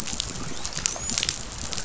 {"label": "biophony, dolphin", "recorder": "SoundTrap 500"}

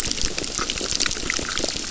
{"label": "biophony, crackle", "recorder": "SoundTrap 600"}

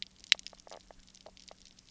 {"label": "biophony, knock croak", "recorder": "SoundTrap 300"}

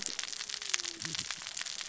{"label": "biophony, cascading saw", "recorder": "SoundTrap 600 or HydroMoth"}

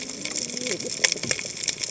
{"label": "biophony, cascading saw", "recorder": "HydroMoth"}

